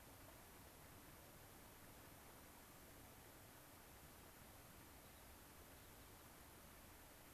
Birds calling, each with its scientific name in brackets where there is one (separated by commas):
unidentified bird